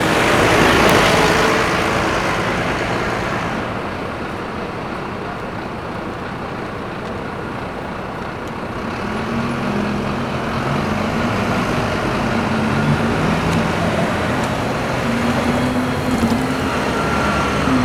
Are vehicles involved?
yes